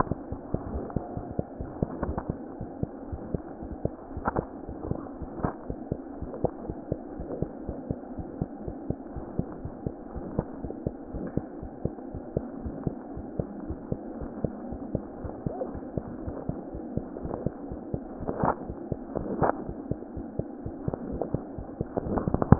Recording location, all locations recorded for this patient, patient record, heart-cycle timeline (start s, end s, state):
mitral valve (MV)
aortic valve (AV)+mitral valve (MV)
#Age: Infant
#Sex: Male
#Height: 52.0 cm
#Weight: 3.7 kg
#Pregnancy status: False
#Murmur: Absent
#Murmur locations: nan
#Most audible location: nan
#Systolic murmur timing: nan
#Systolic murmur shape: nan
#Systolic murmur grading: nan
#Systolic murmur pitch: nan
#Systolic murmur quality: nan
#Diastolic murmur timing: nan
#Diastolic murmur shape: nan
#Diastolic murmur grading: nan
#Diastolic murmur pitch: nan
#Diastolic murmur quality: nan
#Outcome: Abnormal
#Campaign: 2015 screening campaign
0.00	2.59	unannotated
2.59	2.67	S1
2.67	2.80	systole
2.80	2.86	S2
2.86	3.11	diastole
3.11	3.22	S1
3.22	3.32	systole
3.32	3.42	S2
3.42	3.61	diastole
3.61	3.69	S1
3.69	3.83	systole
3.83	3.90	S2
3.90	4.15	diastole
4.15	4.26	S1
4.26	4.36	systole
4.36	4.48	S2
4.48	4.67	diastole
4.67	4.74	S1
4.74	4.89	systole
4.89	4.95	S2
4.95	5.20	diastole
5.20	5.32	S1
5.32	5.40	systole
5.40	5.52	S2
5.52	5.69	diastole
5.69	5.75	S1
5.75	5.90	systole
5.90	5.95	S2
5.95	6.20	diastole
6.20	6.32	S1
6.32	6.40	systole
6.40	6.51	S2
6.51	6.68	diastole
6.68	6.74	S1
6.74	6.90	systole
6.90	6.96	S2
6.96	7.19	diastole
7.19	7.28	S1
7.28	7.40	systole
7.40	7.50	S2
7.50	7.68	diastole
7.68	7.73	S1
7.73	7.88	systole
7.88	7.95	S2
7.95	8.17	diastole
8.17	8.28	S1
8.28	8.40	systole
8.40	8.48	S2
8.48	8.66	diastole
8.66	8.73	S1
8.73	8.88	systole
8.88	8.94	S2
8.94	9.14	diastole
9.14	9.24	S1
9.24	9.38	systole
9.38	9.48	S2
9.48	9.65	diastole
9.65	22.59	unannotated